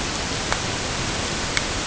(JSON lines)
{"label": "ambient", "recorder": "HydroMoth"}